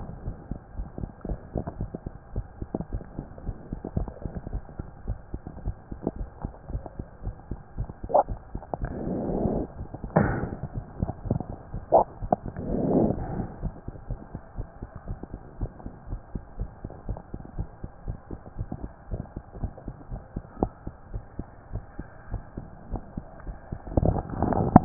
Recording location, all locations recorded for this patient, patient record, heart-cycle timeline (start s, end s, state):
mitral valve (MV)
aortic valve (AV)+pulmonary valve (PV)+tricuspid valve (TV)+mitral valve (MV)
#Age: Child
#Sex: Female
#Height: 122.0 cm
#Weight: 23.6 kg
#Pregnancy status: False
#Murmur: Absent
#Murmur locations: nan
#Most audible location: nan
#Systolic murmur timing: nan
#Systolic murmur shape: nan
#Systolic murmur grading: nan
#Systolic murmur pitch: nan
#Systolic murmur quality: nan
#Diastolic murmur timing: nan
#Diastolic murmur shape: nan
#Diastolic murmur grading: nan
#Diastolic murmur pitch: nan
#Diastolic murmur quality: nan
#Outcome: Abnormal
#Campaign: 2015 screening campaign
0.00	13.60	unannotated
13.60	13.74	S1
13.74	13.86	systole
13.86	13.94	S2
13.94	14.08	diastole
14.08	14.19	S1
14.19	14.32	systole
14.32	14.40	S2
14.40	14.56	diastole
14.56	14.68	S1
14.68	14.80	systole
14.80	14.90	S2
14.90	15.08	diastole
15.08	15.20	S1
15.20	15.32	systole
15.32	15.42	S2
15.42	15.60	diastole
15.60	15.72	S1
15.72	15.84	systole
15.84	15.94	S2
15.94	16.09	diastole
16.09	16.22	S1
16.22	16.32	systole
16.32	16.44	S2
16.44	16.57	diastole
16.57	16.70	S1
16.70	16.81	systole
16.81	16.92	S2
16.92	17.06	diastole
17.06	17.18	S1
17.18	17.32	systole
17.32	17.44	S2
17.44	17.55	diastole
17.55	17.68	S1
17.68	17.81	systole
17.81	17.90	S2
17.90	18.06	diastole
18.06	18.18	S1
18.18	18.30	systole
18.30	18.40	S2
18.40	18.58	diastole
18.58	18.70	S1
18.70	18.82	systole
18.82	18.92	S2
18.92	19.10	diastole
19.10	19.24	S1
19.24	19.34	systole
19.34	19.44	S2
19.44	19.62	diastole
19.62	19.74	S1
19.74	19.86	systole
19.86	19.96	S2
19.96	20.10	diastole
20.10	20.20	S1
20.20	20.32	systole
20.32	20.44	S2
20.44	20.58	diastole
20.58	20.70	S1
20.70	20.84	systole
20.84	20.96	S2
20.96	21.12	diastole
21.12	21.24	S1
21.24	21.36	systole
21.36	21.46	S2
21.46	21.71	diastole
21.71	21.84	S1
21.84	21.95	systole
21.95	22.06	S2
22.06	22.28	diastole
22.28	22.42	S1
22.42	22.55	systole
22.55	22.68	S2
22.68	22.88	diastole
22.88	23.04	S1
23.04	23.14	systole
23.14	23.24	S2
23.24	23.44	diastole
23.44	23.58	S1
23.58	23.70	systole
23.70	23.80	S2
23.80	24.85	unannotated